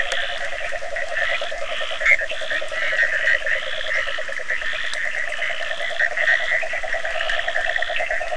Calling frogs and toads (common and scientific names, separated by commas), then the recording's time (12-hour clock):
Bischoff's tree frog (Boana bischoffi), yellow cururu toad (Rhinella icterica), Leptodactylus latrans, Cochran's lime tree frog (Sphaenorhynchus surdus)
12:45am